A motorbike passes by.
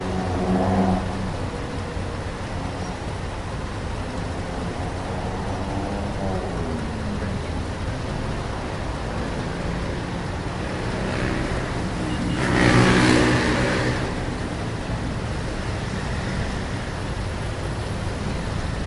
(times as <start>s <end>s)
12.1s 14.7s